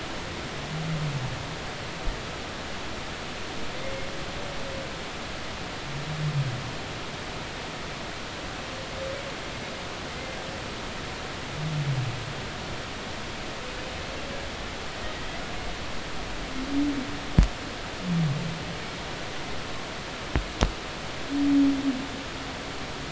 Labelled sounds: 10.1	10.4	humpback whale, 2.0 to 2.1 kHz

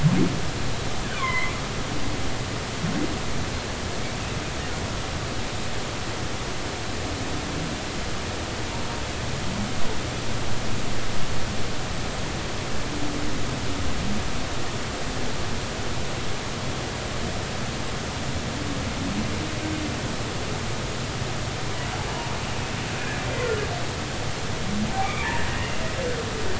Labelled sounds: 1.1	1.5	humpback whale, 0.96 to 2.2 kHz
23.3	23.6	humpback whale, 1.7 to 2.1 kHz
25.0	25.3	humpback whale, 2.1 to 2.5 kHz

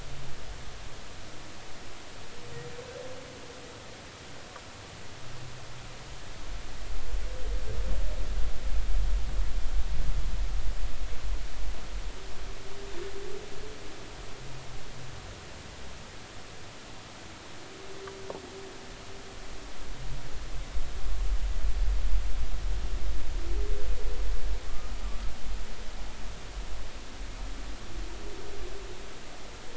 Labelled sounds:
24.7	24.9	humpback whale, 1.1 to 1.3 kHz

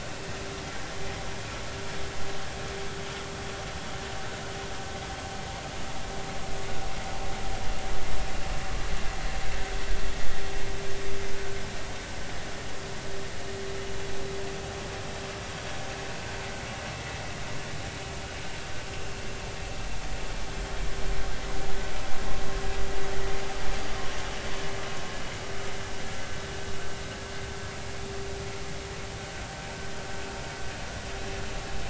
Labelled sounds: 11.3	11.6	vessel noise, 1.4 to 1.6 kHz

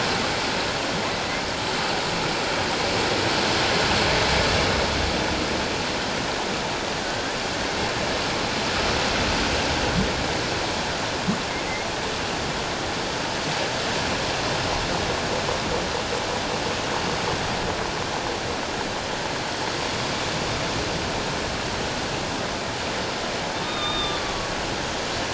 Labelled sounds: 23.6	24.2	humpback whale, 1.1 to 3.8 kHz

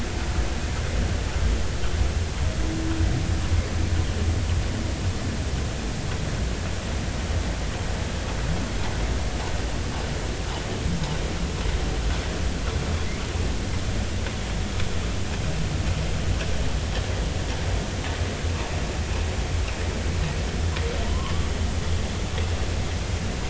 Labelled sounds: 21.1	21.5	humpback whale, 0.96 to 1.2 kHz

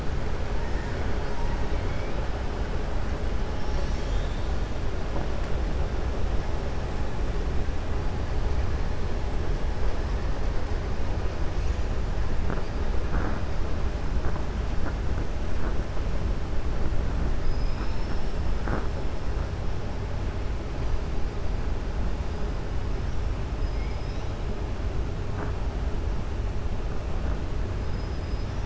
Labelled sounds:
0.6	1.0	killer whale, 0.92 to 2.2 kHz
27.8	28.6	killer whale, 5.0 to 5.9 kHz

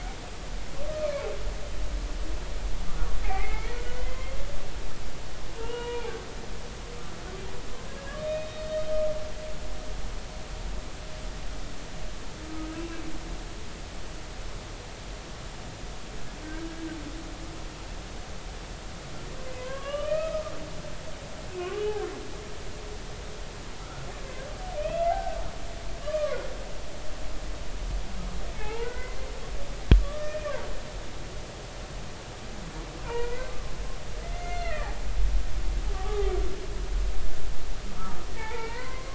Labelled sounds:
0.0	1.3	humpback whale, 0.80 to 2.6 kHz
3.2	4.3	humpback whale, 0.80 to 2.3 kHz
5.5	6.1	humpback whale, 0.80 to 2.9 kHz
8.3	8.5	humpback whale, 2.4 to 2.6 kHz
12.7	13.0	humpback whale, 2.5 to 2.8 kHz
19.6	20.4	humpback whale, 0.96 to 3.4 kHz
21.5	21.8	humpback whale, 1.0 to 2.7 kHz
23.8	25.4	humpback whale, 0.80 to 2.8 kHz
26.0	26.4	humpback whale, 0.99 to 1.3 kHz
28.5	29.2	humpback whale, 0.80 to 2.9 kHz
30.1	30.5	humpback whale, 1.7 to 2.5 kHz
31.0	31.4	humpback whale, 1.1 to 1.3 kHz
33.0	33.7	humpback whale, 0.86 to 2.5 kHz
34.3	35.0	humpback whale, 1.1 to 2.8 kHz
35.9	36.3	humpback whale, 0.80 to 1.3 kHz
38.4	39.1	humpback whale, 0.83 to 2.5 kHz

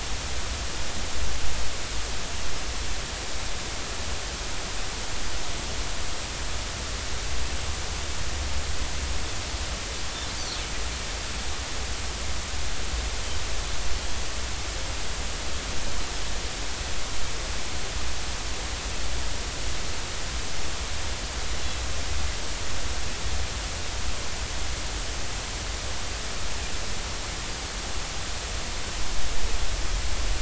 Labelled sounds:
14.0	14.2	Pacific white-sided dolphin, 3.2 to 3.4 kHz

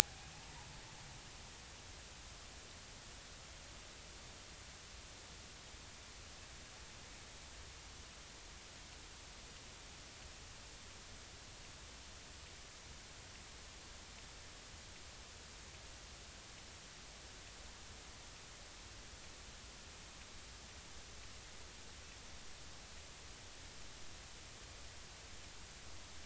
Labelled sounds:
0.0	0.3	killer whale, Bigg's (transient), 0.80 to 0.86 kHz

